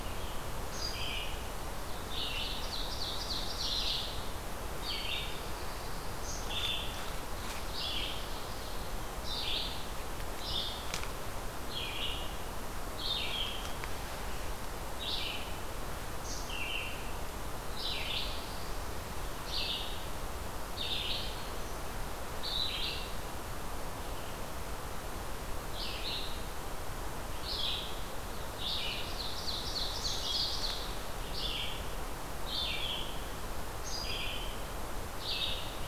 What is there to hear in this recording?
Red-eyed Vireo, Ovenbird